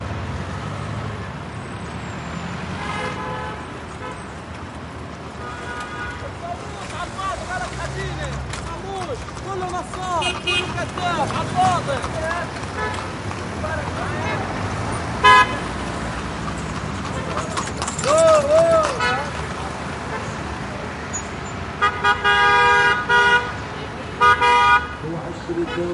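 Ambient street sounds. 0:00.0 - 0:25.9
A car accelerates. 0:00.5 - 0:02.4
A car honks with a higher pitch. 0:02.6 - 0:04.7
Motor sounds of a car. 0:04.2 - 0:05.7
A car horn sounds in the distance. 0:05.7 - 0:06.3
A man is speaking loudly. 0:06.5 - 0:15.1
A car horn sounds loudly. 0:15.1 - 0:15.5
A car passes by. 0:15.8 - 0:17.7
A horse gallops by. 0:17.7 - 0:19.6
A man is shouting. 0:18.4 - 0:19.7
A car honks in the distance. 0:20.1 - 0:20.5
A car brakes with a squeaking sound. 0:21.5 - 0:21.9
Two short car horns are followed by a long horn and then a short horn. 0:21.8 - 0:23.8
A car horn honks twice in quick succession. 0:24.2 - 0:24.9
A man is mumbling words in the distance. 0:25.3 - 0:25.9
A car honks in the distance. 0:25.5 - 0:25.9

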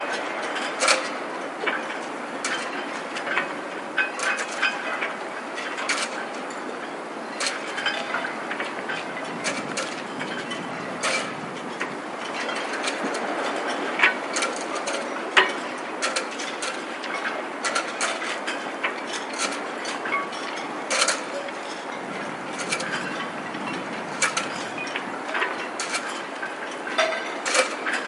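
Masts and rigging creak and sway. 0:00.0 - 0:28.1
Wind blows through a boatyard. 0:00.1 - 0:28.1

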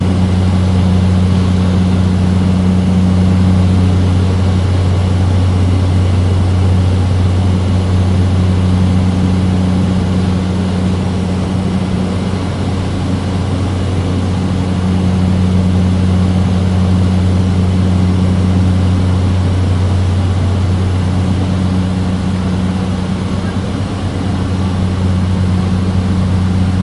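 The constant sound of an airplane engine. 0:00.0 - 0:26.8

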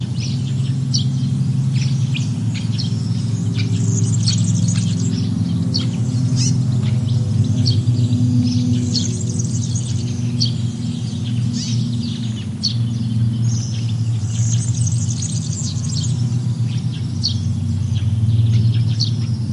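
Birds chirp in a forest as a distant airplane passes overhead with a soft motor hum, blending mechanical and natural sounds in a serene outdoor setting. 0:00.0 - 0:19.5

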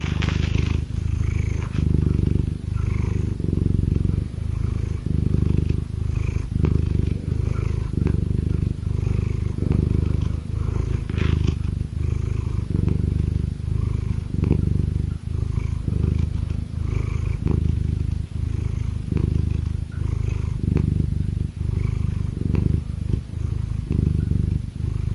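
A cat purrs steadily and continuously. 0:00.0 - 0:25.1

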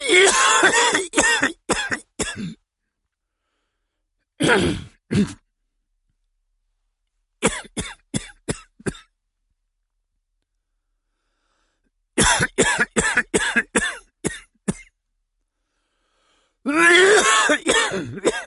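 A person is coughing loudly indoors. 0:00.1 - 0:04.3
Someone clears their throat loudly indoors. 0:04.3 - 0:05.6
A person is coughing loudly indoors. 0:06.5 - 0:09.4
Someone is coughing loudly and repeatedly indoors. 0:11.6 - 0:15.1
A person coughs loudly indoors. 0:16.0 - 0:18.5

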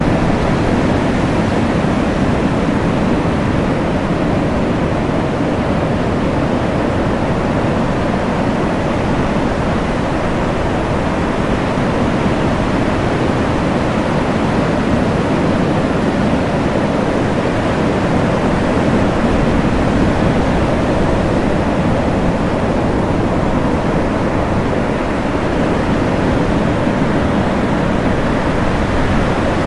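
A strong and steady wind is blowing. 0:00.0 - 0:29.7
Consistent, rhythmic waves producing repeated splashing sounds. 0:00.0 - 0:29.7

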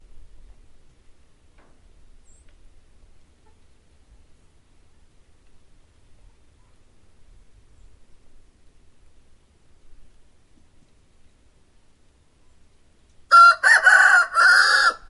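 A rooster is crowing. 0:13.2 - 0:15.1

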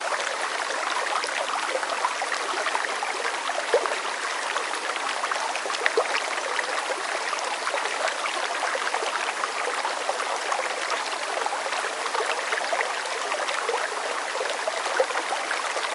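A small river flows. 0:00.0 - 0:15.9
Water flowing into another water source. 0:00.0 - 0:15.9
Water running into a small lake. 0:00.0 - 0:15.9

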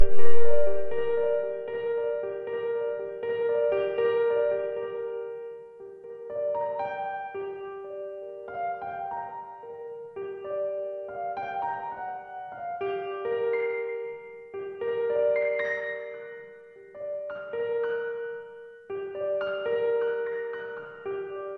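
A piano plays clear, rhythmic, and periodic tones with an echo. 0:00.0 - 0:05.4
A piano plays a clear, rhythmic, and rising tone. 0:06.2 - 0:07.7
A piano plays a clear rhythmic tone that resonates with an echo. 0:08.4 - 0:09.5
A piano plays clear, irregular tones that create an echo. 0:10.2 - 0:16.5
A piano plays clear, rhythmic tones that create an echo. 0:16.9 - 0:18.6
A piano plays clear, irregular tones that create an echo. 0:18.8 - 0:20.9

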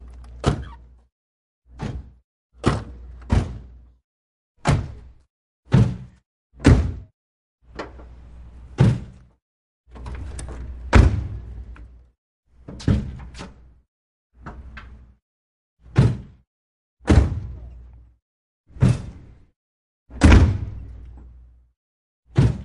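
A car door closes with a sharp, metallic clang. 0:00.3 - 0:00.9
A car door closes with a sharp, metallic clang. 0:01.5 - 0:03.8
A car door closes with a sharp, metallic clang. 0:04.4 - 0:12.0
A car door opens and closes with a sharp, metallic clang. 0:04.4 - 0:12.0
A car door closes with a sharp, metallic clang. 0:12.6 - 0:13.8
A car door opens and closes with a sharp, metallic clang. 0:12.6 - 0:13.8
A car door closes with a sharp, metallic clang. 0:14.4 - 0:19.3
A car door opens and closes with a sharp, metallic clang. 0:14.4 - 0:19.3
A car door closes with a sharp, metallic clang. 0:20.0 - 0:21.6
A car door opens and closes with a sharp, metallic clang. 0:20.0 - 0:21.6
A car door closes with a sharp, metallic clang. 0:22.3 - 0:22.6
A car door opens and closes with a sharp, metallic clang. 0:22.3 - 0:22.6

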